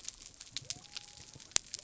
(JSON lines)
{"label": "biophony", "recorder": "SoundTrap 300"}